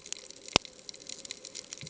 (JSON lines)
{"label": "ambient", "recorder": "HydroMoth"}